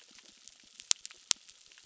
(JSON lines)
{"label": "biophony, crackle", "recorder": "SoundTrap 600"}